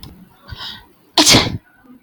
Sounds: Sneeze